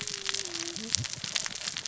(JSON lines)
{"label": "biophony, cascading saw", "recorder": "SoundTrap 600 or HydroMoth"}